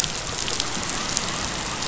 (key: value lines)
label: biophony
recorder: SoundTrap 500